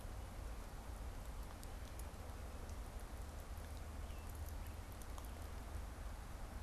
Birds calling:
American Robin (Turdus migratorius)

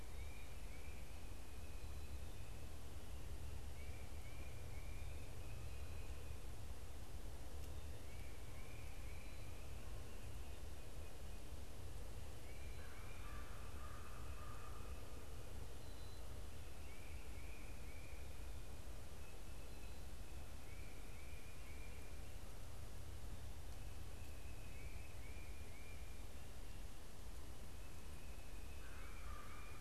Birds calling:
Tufted Titmouse (Baeolophus bicolor)
American Crow (Corvus brachyrhynchos)
Black-capped Chickadee (Poecile atricapillus)

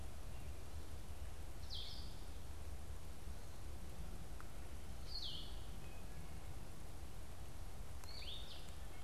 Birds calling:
Blue-headed Vireo (Vireo solitarius)

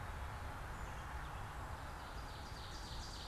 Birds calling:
Ovenbird (Seiurus aurocapilla)

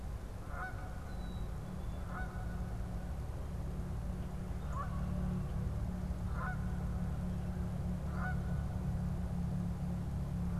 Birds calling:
Canada Goose (Branta canadensis)
Black-capped Chickadee (Poecile atricapillus)

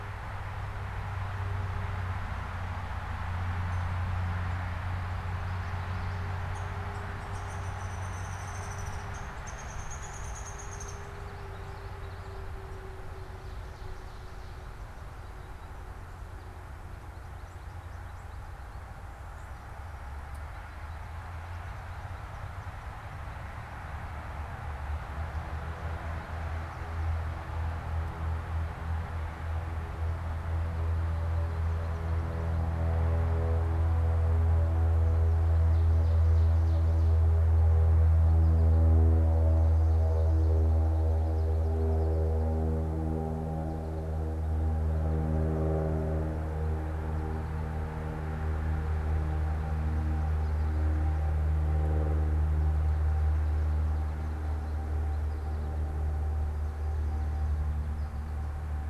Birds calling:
Downy Woodpecker (Dryobates pubescens)
Ovenbird (Seiurus aurocapilla)
Common Yellowthroat (Geothlypis trichas)

